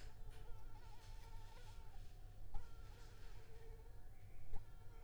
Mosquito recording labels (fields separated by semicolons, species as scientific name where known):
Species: Anopheles arabiensis; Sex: female; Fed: unfed; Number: one; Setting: cup